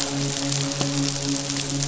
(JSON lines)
{"label": "biophony, midshipman", "recorder": "SoundTrap 500"}